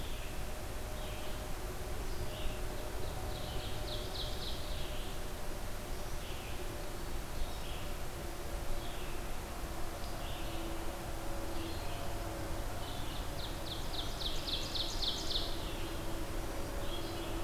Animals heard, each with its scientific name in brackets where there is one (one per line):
Ovenbird (Seiurus aurocapilla)
Red-eyed Vireo (Vireo olivaceus)